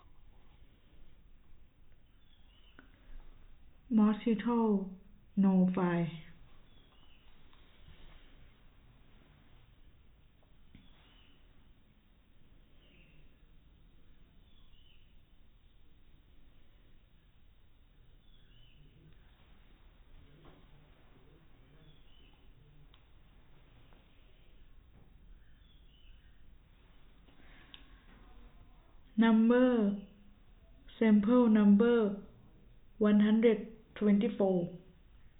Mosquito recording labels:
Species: no mosquito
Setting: cup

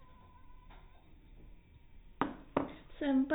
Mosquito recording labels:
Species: no mosquito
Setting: cup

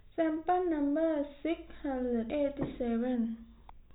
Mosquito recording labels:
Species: no mosquito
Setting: cup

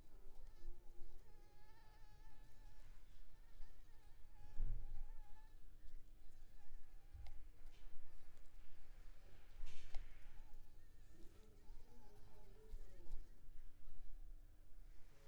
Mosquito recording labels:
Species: Anopheles maculipalpis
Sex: female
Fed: unfed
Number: one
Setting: cup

